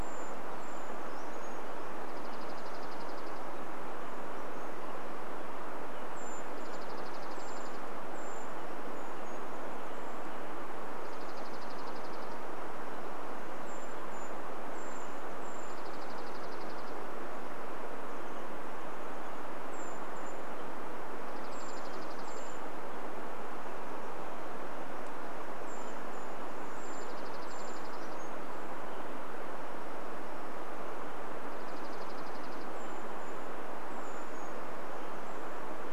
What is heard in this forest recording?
Brown Creeper song, Dark-eyed Junco song, Brown Creeper call, Chestnut-backed Chickadee call